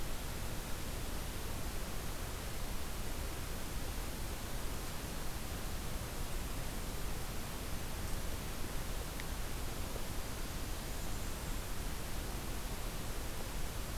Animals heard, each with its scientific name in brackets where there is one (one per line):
Blackburnian Warbler (Setophaga fusca)